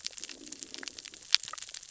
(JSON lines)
{"label": "biophony, cascading saw", "recorder": "SoundTrap 600 or HydroMoth"}